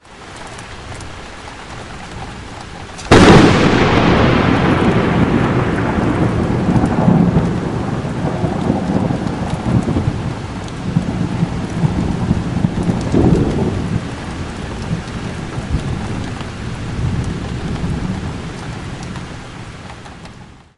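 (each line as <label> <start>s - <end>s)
Rain rushes evenly in the background. 0.0s - 20.8s
Thunder claps loudly and echoes for a long time. 3.0s - 14.0s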